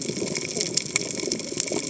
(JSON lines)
{"label": "biophony, cascading saw", "recorder": "HydroMoth"}